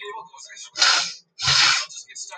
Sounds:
Sniff